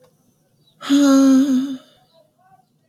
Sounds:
Sigh